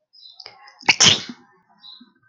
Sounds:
Sneeze